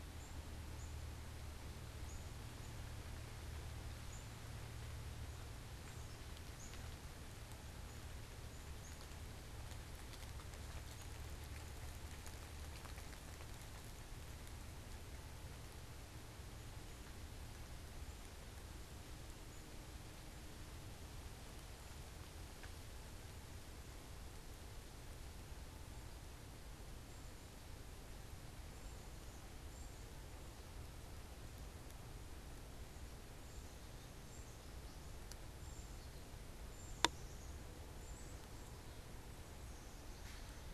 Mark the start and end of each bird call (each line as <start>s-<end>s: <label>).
0.0s-12.5s: Black-capped Chickadee (Poecile atricapillus)
28.4s-38.8s: unidentified bird